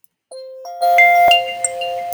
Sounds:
Throat clearing